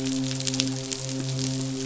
{"label": "biophony, midshipman", "recorder": "SoundTrap 500"}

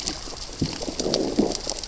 {"label": "biophony, growl", "recorder": "SoundTrap 600 or HydroMoth"}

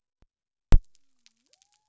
{"label": "biophony", "recorder": "SoundTrap 300"}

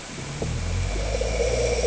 {"label": "anthrophony, boat engine", "recorder": "HydroMoth"}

